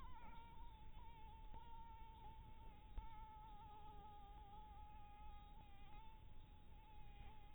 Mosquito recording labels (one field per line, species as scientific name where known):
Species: Anopheles harrisoni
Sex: female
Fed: blood-fed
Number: one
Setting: cup